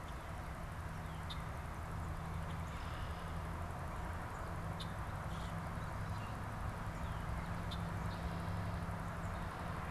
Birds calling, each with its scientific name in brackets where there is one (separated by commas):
Common Grackle (Quiscalus quiscula), Red-winged Blackbird (Agelaius phoeniceus)